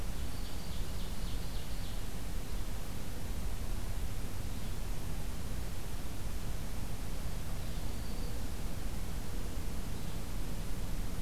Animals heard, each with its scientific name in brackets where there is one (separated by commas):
Ovenbird (Seiurus aurocapilla), Black-throated Green Warbler (Setophaga virens), Red-eyed Vireo (Vireo olivaceus)